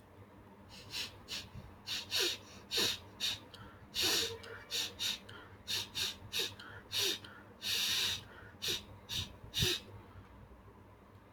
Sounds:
Sniff